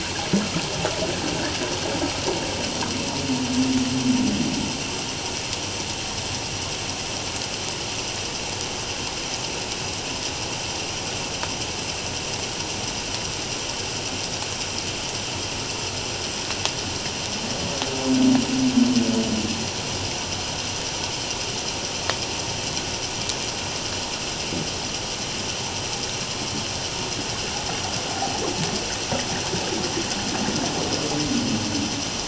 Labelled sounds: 28.1	28.4	humpback whale, 0.78 to 0.88 kHz

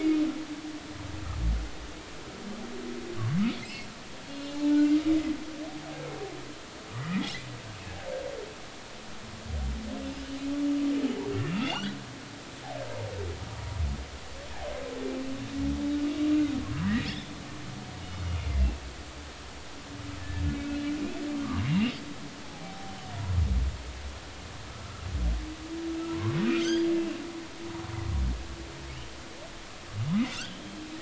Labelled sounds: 3.6	5.0	humpback whale, 0.80 to 3.5 kHz
6.9	7.3	humpback whale, 1.8 to 2.1 kHz
11.5	11.9	humpback whale, 2.6 to 4.7 kHz
17.0	17.3	humpback whale, 3.2 to 5.4 kHz
20.2	20.4	humpback whale, 1.7 to 1.9 kHz
21.4	22.0	humpback whale, 0.96 to 2.9 kHz
22.4	23.0	humpback whale, 0.80 to 0.90 kHz
24.8	25.1	humpback whale, 1.2 to 1.4 kHz
26.1	26.9	humpback whale, 0.93 to 5.1 kHz
30.3	30.6	humpback whale, 1.2 to 1.7 kHz

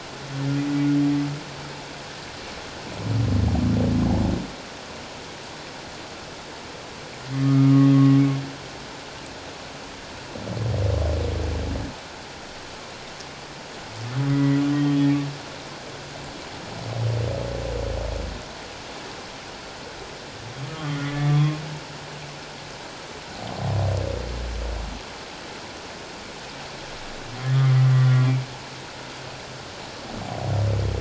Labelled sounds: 7.4	7.8	humpback whale, 1.2 to 1.4 kHz
14.3	15.0	humpback whale, 1.8 to 3.2 kHz
27.5	28.3	humpback whale, 1.1 to 2.0 kHz

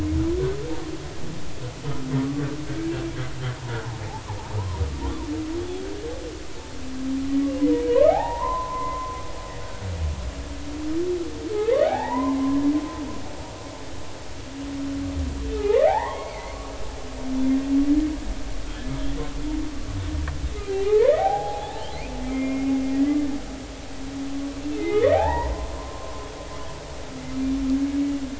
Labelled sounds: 2.7	2.9	humpback whale, 1.5 to 1.7 kHz
7.9	9.2	humpback whale, 0.80 to 2.1 kHz
11.5	12.6	humpback whale, 0.80 to 2.1 kHz
15.6	16.7	humpback whale, 0.80 to 2.4 kHz
20.6	23.2	humpback whale, 0.80 to 2.6 kHz
24.8	26.3	humpback whale, 0.80 to 2.2 kHz

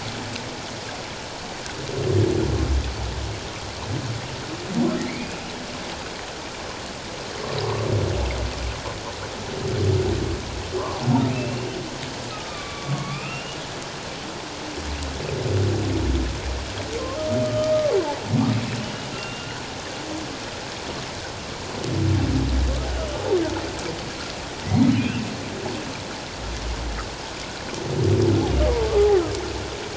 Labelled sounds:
5.1	5.4	humpback whale, 2.0 to 2.5 kHz
10.8	11.0	humpback whale, 0.91 to 1.2 kHz
11.3	13.6	humpback whale, 1.0 to 2.9 kHz
17.4	17.7	humpback whale, 1.2 to 3.1 kHz
18.8	19.6	humpback whale, 1.4 to 3.0 kHz
25.0	25.2	humpback whale, 2.3 to 2.9 kHz

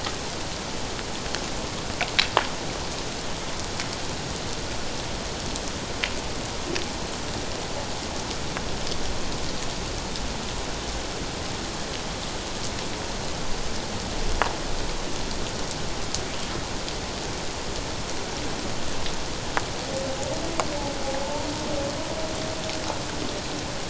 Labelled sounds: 21.2	21.5	humpback whale, 0.84 to 0.97 kHz

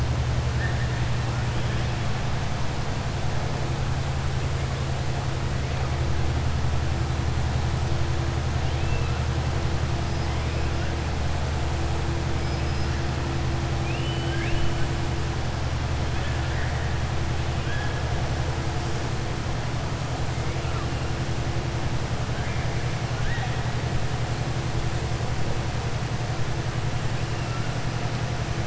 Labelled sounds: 8.6	9.2	killer whale, southern resident, 1.8 to 3.5 kHz
13.7	14.8	killer whale, southern resident, 1.6 to 3.7 kHz
23.1	23.6	killer whale, southern resident, 0.81 to 3.9 kHz

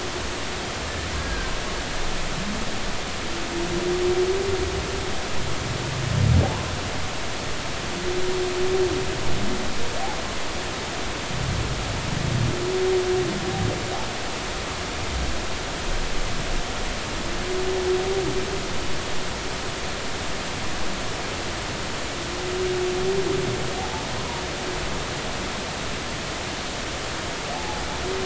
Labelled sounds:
1.2	1.5	humpback whale, 1.5 to 1.7 kHz
27.5	27.8	humpback whale, 0.80 to 0.90 kHz

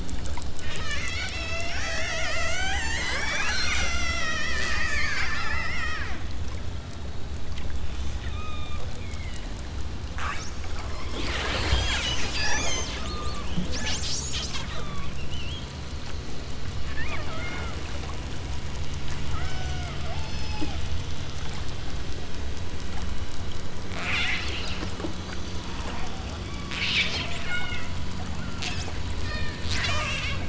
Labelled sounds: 0.6	6.2	killer whale, southern Alaska resident, 0.34 to 8.0 kHz
8.3	9.7	killer whale, southern Alaska resident, 0.99 to 6.8 kHz
12.3	13.6	killer whale, southern Alaska resident, 0.64 to 7.1 kHz
14.7	15.2	killer whale, southern Alaska resident, 0.81 to 3.9 kHz
17.0	17.8	killer whale, southern Alaska resident, 0.39 to 3.6 kHz
19.3	20.8	killer whale, southern Alaska resident, 0.43 to 8.0 kHz
24.0	24.5	killer whale, southern Alaska resident, 0.86 to 8.0 kHz
26.7	27.9	killer whale, southern Alaska resident, 1.2 to 5.7 kHz
29.2	30.4	killer whale, southern Alaska resident, 0.39 to 8.0 kHz

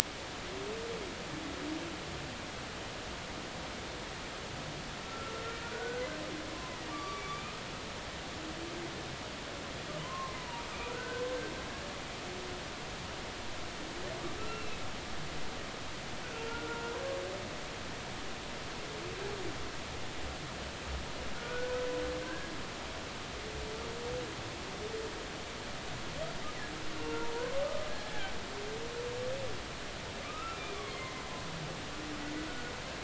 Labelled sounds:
5.0	5.3	humpback whale, 1.3 to 1.4 kHz
5.7	7.6	humpback whale, 1.1 to 5.8 kHz
10.0	11.2	humpback whale, 0.86 to 1.7 kHz
14.4	14.8	humpback whale, 1.3 to 2.8 kHz
16.5	16.9	humpback whale, 1.3 to 1.5 kHz
21.4	21.8	humpback whale, 1.4 to 1.6 kHz
22.2	22.5	humpback whale, 1.5 to 1.7 kHz
27.0	27.3	humpback whale, 0.90 to 0.99 kHz
27.6	28.3	humpback whale, 0.80 to 1.8 kHz
30.2	31.2	humpback whale, 1.0 to 2.2 kHz

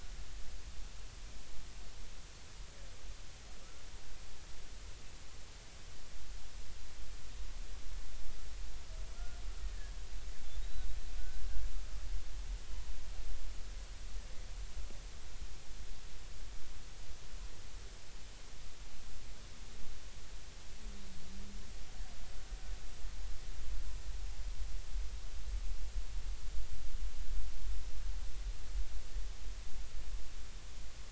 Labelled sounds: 9.1	9.9	killer whale, Bigg's (transient), 1.3 to 1.9 kHz

